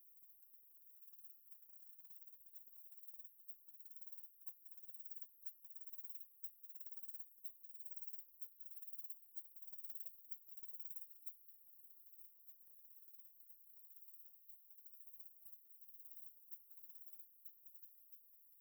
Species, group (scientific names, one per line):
Barbitistes fischeri
Orthoptera